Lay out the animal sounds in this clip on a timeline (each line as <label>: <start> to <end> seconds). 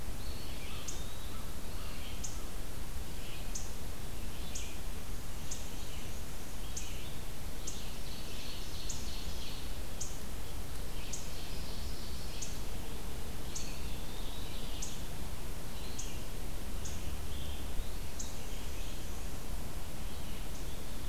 Eastern Wood-Pewee (Contopus virens): 0.0 to 1.8 seconds
American Crow (Corvus brachyrhynchos): 0.3 to 2.4 seconds
Red-eyed Vireo (Vireo olivaceus): 0.6 to 21.1 seconds
Ovenbird (Seiurus aurocapilla): 7.2 to 10.4 seconds
Ovenbird (Seiurus aurocapilla): 10.6 to 13.1 seconds
Eastern Wood-Pewee (Contopus virens): 13.2 to 15.1 seconds
Black-and-white Warbler (Mniotilta varia): 18.1 to 19.4 seconds
Ovenbird (Seiurus aurocapilla): 20.5 to 21.1 seconds